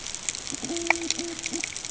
{"label": "ambient", "recorder": "HydroMoth"}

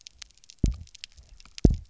{"label": "biophony, double pulse", "recorder": "SoundTrap 300"}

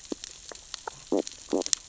{"label": "biophony, stridulation", "recorder": "SoundTrap 600 or HydroMoth"}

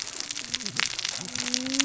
{"label": "biophony, cascading saw", "recorder": "SoundTrap 600 or HydroMoth"}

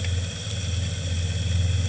{"label": "anthrophony, boat engine", "recorder": "HydroMoth"}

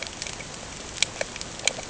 {"label": "ambient", "recorder": "HydroMoth"}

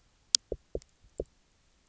{"label": "biophony, knock", "recorder": "SoundTrap 300"}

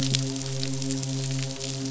{"label": "biophony, midshipman", "recorder": "SoundTrap 500"}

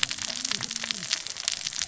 {"label": "biophony, cascading saw", "recorder": "SoundTrap 600 or HydroMoth"}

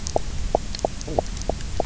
{"label": "biophony, knock croak", "recorder": "SoundTrap 300"}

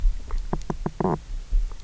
{"label": "biophony, knock croak", "recorder": "SoundTrap 300"}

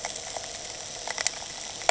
{"label": "anthrophony, boat engine", "recorder": "HydroMoth"}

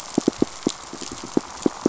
{"label": "biophony, pulse", "recorder": "SoundTrap 500"}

